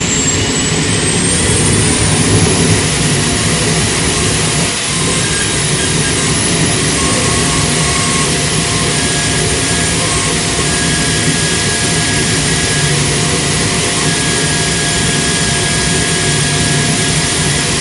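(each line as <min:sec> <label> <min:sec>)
0:00.0 A jet engine starts up and then shuts down. 0:17.8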